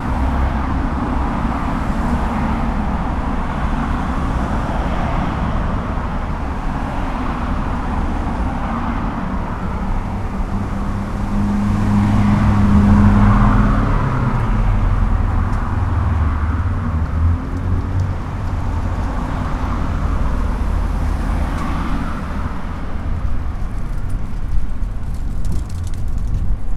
Does this take place outside?
yes